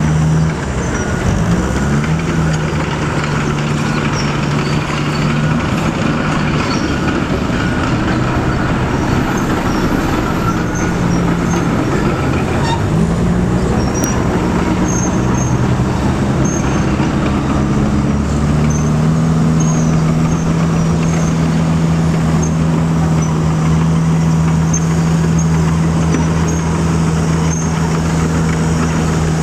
does the vehicle break at all?
no